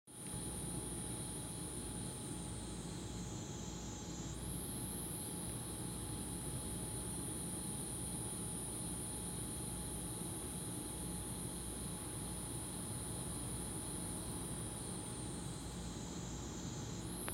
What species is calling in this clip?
Platypleura takasagona